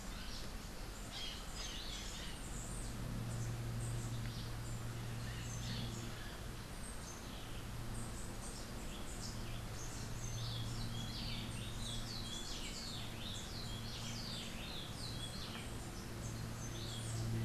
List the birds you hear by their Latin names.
Psittacara finschi, Cantorchilus modestus